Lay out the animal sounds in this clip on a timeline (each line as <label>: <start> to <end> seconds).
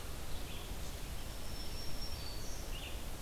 Red-eyed Vireo (Vireo olivaceus): 0.2 to 3.2 seconds
Black-throated Green Warbler (Setophaga virens): 1.0 to 2.7 seconds